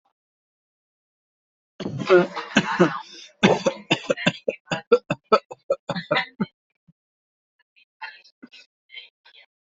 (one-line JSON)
{"expert_labels": [{"quality": "good", "cough_type": "dry", "dyspnea": false, "wheezing": false, "stridor": false, "choking": false, "congestion": false, "nothing": true, "diagnosis": "upper respiratory tract infection", "severity": "mild"}], "age": 28, "gender": "male", "respiratory_condition": false, "fever_muscle_pain": false, "status": "healthy"}